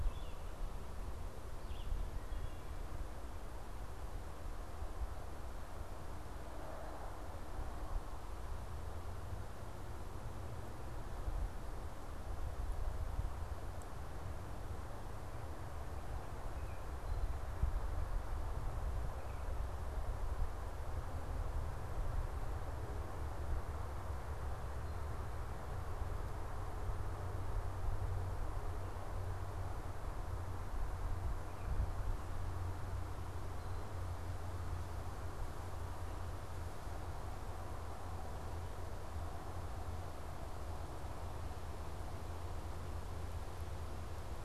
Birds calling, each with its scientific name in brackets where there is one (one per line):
Wood Thrush (Hylocichla mustelina)
Red-eyed Vireo (Vireo olivaceus)